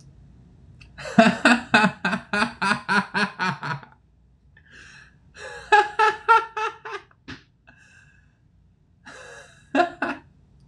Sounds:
Laughter